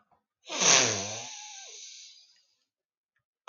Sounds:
Sniff